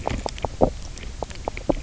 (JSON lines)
{"label": "biophony, knock croak", "recorder": "SoundTrap 300"}